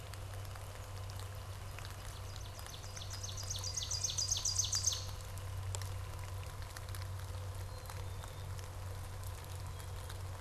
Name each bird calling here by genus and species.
Hylocichla mustelina, Seiurus aurocapilla